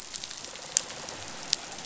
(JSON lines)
{"label": "biophony", "recorder": "SoundTrap 500"}